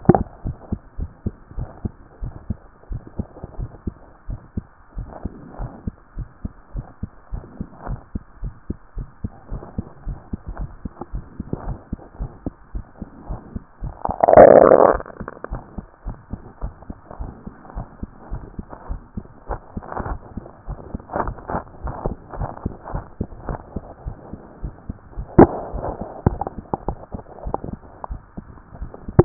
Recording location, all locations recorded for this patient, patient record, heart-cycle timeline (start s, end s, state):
mitral valve (MV)
aortic valve (AV)+pulmonary valve (PV)+tricuspid valve (TV)+mitral valve (MV)
#Age: Child
#Sex: Male
#Height: 113.0 cm
#Weight: 20.6 kg
#Pregnancy status: False
#Murmur: Present
#Murmur locations: aortic valve (AV)+mitral valve (MV)+pulmonary valve (PV)+tricuspid valve (TV)
#Most audible location: tricuspid valve (TV)
#Systolic murmur timing: Holosystolic
#Systolic murmur shape: Plateau
#Systolic murmur grading: II/VI
#Systolic murmur pitch: Low
#Systolic murmur quality: Harsh
#Diastolic murmur timing: nan
#Diastolic murmur shape: nan
#Diastolic murmur grading: nan
#Diastolic murmur pitch: nan
#Diastolic murmur quality: nan
#Outcome: Normal
#Campaign: 2014 screening campaign
0.00	0.98	unannotated
0.98	1.10	S1
1.10	1.24	systole
1.24	1.34	S2
1.34	1.56	diastole
1.56	1.68	S1
1.68	1.82	systole
1.82	1.92	S2
1.92	2.22	diastole
2.22	2.34	S1
2.34	2.48	systole
2.48	2.58	S2
2.58	2.90	diastole
2.90	3.02	S1
3.02	3.18	systole
3.18	3.26	S2
3.26	3.58	diastole
3.58	3.70	S1
3.70	3.86	systole
3.86	3.94	S2
3.94	4.28	diastole
4.28	4.40	S1
4.40	4.56	systole
4.56	4.64	S2
4.64	4.96	diastole
4.96	5.08	S1
5.08	5.24	systole
5.24	5.32	S2
5.32	5.58	diastole
5.58	5.70	S1
5.70	5.86	systole
5.86	5.94	S2
5.94	6.16	diastole
6.16	6.28	S1
6.28	6.42	systole
6.42	6.52	S2
6.52	6.74	diastole
6.74	6.86	S1
6.86	7.02	systole
7.02	7.10	S2
7.10	7.32	diastole
7.32	7.44	S1
7.44	7.58	systole
7.58	7.68	S2
7.68	7.88	diastole
7.88	8.00	S1
8.00	8.14	systole
8.14	8.22	S2
8.22	8.42	diastole
8.42	8.54	S1
8.54	8.68	systole
8.68	8.78	S2
8.78	8.96	diastole
8.96	9.08	S1
9.08	9.22	systole
9.22	9.32	S2
9.32	9.50	diastole
9.50	9.62	S1
9.62	9.76	systole
9.76	9.86	S2
9.86	10.06	diastole
10.06	10.18	S1
10.18	10.32	systole
10.32	10.40	S2
10.40	10.58	diastole
10.58	10.70	S1
10.70	10.84	systole
10.84	10.92	S2
10.92	11.12	diastole
11.12	11.24	S1
11.24	11.38	systole
11.38	11.46	S2
11.46	11.66	diastole
11.66	11.78	S1
11.78	11.90	systole
11.90	12.00	S2
12.00	12.18	diastole
12.18	12.30	S1
12.30	12.44	systole
12.44	12.54	S2
12.54	12.74	diastole
12.74	12.84	S1
12.84	13.00	systole
13.00	13.08	S2
13.08	13.28	diastole
13.28	13.40	S1
13.40	13.54	systole
13.54	13.62	S2
13.62	13.82	diastole
13.82	29.25	unannotated